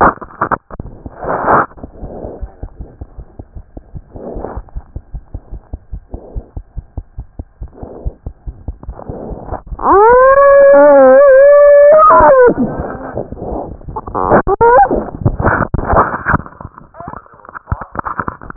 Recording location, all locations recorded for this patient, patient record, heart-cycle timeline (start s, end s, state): aortic valve (AV)
aortic valve (AV)+aortic valve (AV)+mitral valve (MV)
#Age: Child
#Sex: Female
#Height: 77.0 cm
#Weight: 10.5 kg
#Pregnancy status: False
#Murmur: Absent
#Murmur locations: nan
#Most audible location: nan
#Systolic murmur timing: nan
#Systolic murmur shape: nan
#Systolic murmur grading: nan
#Systolic murmur pitch: nan
#Systolic murmur quality: nan
#Diastolic murmur timing: nan
#Diastolic murmur shape: nan
#Diastolic murmur grading: nan
#Diastolic murmur pitch: nan
#Diastolic murmur quality: nan
#Outcome: Normal
#Campaign: 2014 screening campaign
0.00	4.76	unannotated
4.76	4.82	S1
4.82	4.96	systole
4.96	5.00	S2
5.00	5.14	diastole
5.14	5.22	S1
5.22	5.34	systole
5.34	5.40	S2
5.40	5.54	diastole
5.54	5.60	S1
5.60	5.72	systole
5.72	5.78	S2
5.78	5.92	diastole
5.92	6.00	S1
6.00	6.14	systole
6.14	6.20	S2
6.20	6.36	diastole
6.36	6.44	S1
6.44	6.56	systole
6.56	6.64	S2
6.64	6.78	diastole
6.78	6.84	S1
6.84	6.98	systole
6.98	7.04	S2
7.04	7.18	diastole
7.18	7.26	S1
7.26	7.38	systole
7.38	7.46	S2
7.46	7.62	diastole
7.62	7.70	S1
7.70	7.82	systole
7.82	7.90	S2
7.90	8.04	diastole
8.04	8.14	S1
8.14	8.26	systole
8.26	8.34	S2
8.34	8.48	diastole
8.48	8.56	S1
8.56	8.68	systole
8.68	8.76	S2
8.76	8.88	diastole
8.88	18.56	unannotated